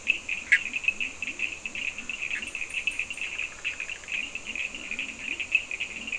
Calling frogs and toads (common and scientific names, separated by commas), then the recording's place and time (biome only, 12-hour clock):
Leptodactylus latrans, Cochran's lime tree frog (Sphaenorhynchus surdus), Bischoff's tree frog (Boana bischoffi)
Atlantic Forest, 4:15am